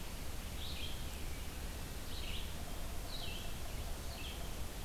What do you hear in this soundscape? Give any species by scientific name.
Vireo olivaceus